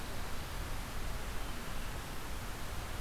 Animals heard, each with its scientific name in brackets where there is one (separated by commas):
Winter Wren (Troglodytes hiemalis), Red-eyed Vireo (Vireo olivaceus)